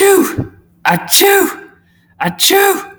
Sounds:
Sneeze